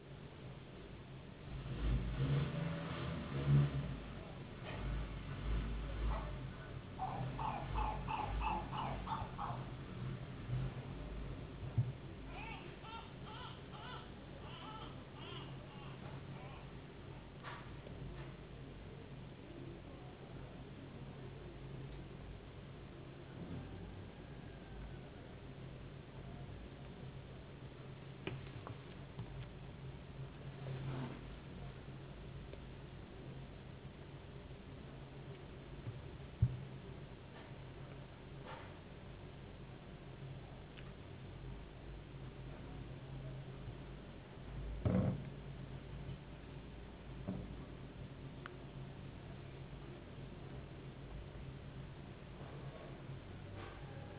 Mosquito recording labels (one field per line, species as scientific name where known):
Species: no mosquito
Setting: insect culture